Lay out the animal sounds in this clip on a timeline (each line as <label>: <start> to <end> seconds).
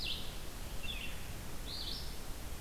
Red-eyed Vireo (Vireo olivaceus): 0.0 to 2.6 seconds